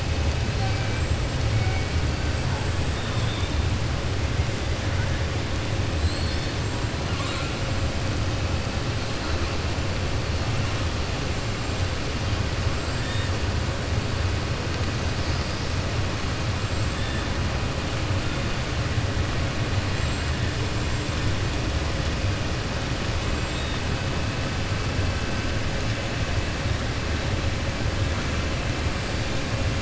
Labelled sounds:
0.5	1.0	killer whale, 0.76 to 4.6 kHz
2.9	3.5	killer whale, 2.6 to 3.7 kHz
5.9	6.5	killer whale, 3.5 to 5.4 kHz
7.0	7.5	killer whale, 1.0 to 4.3 kHz

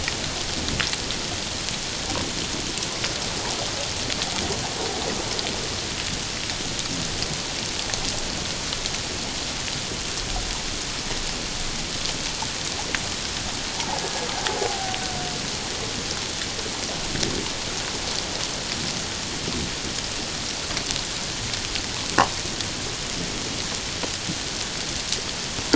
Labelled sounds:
13.8	15.0	killer whale, Bigg's (transient), 0.78 to 1.7 kHz

